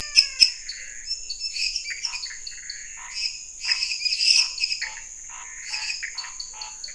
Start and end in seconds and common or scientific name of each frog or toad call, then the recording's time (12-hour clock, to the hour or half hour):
0.0	6.9	lesser tree frog
0.0	6.9	Pithecopus azureus
0.6	6.9	dwarf tree frog
2.0	6.9	Scinax fuscovarius
~11pm